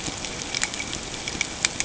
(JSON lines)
{"label": "ambient", "recorder": "HydroMoth"}